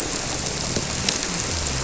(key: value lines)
label: biophony
recorder: SoundTrap 300